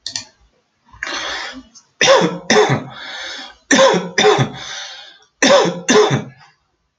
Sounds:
Cough